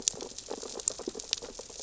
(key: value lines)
label: biophony, sea urchins (Echinidae)
recorder: SoundTrap 600 or HydroMoth